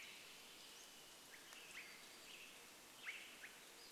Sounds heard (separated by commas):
Pacific-slope Flycatcher call, Swainson's Thrush call, Western Tanager song